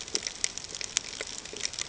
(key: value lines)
label: ambient
recorder: HydroMoth